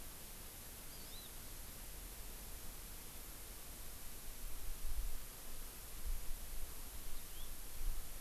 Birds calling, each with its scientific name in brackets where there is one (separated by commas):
Hawaii Amakihi (Chlorodrepanis virens)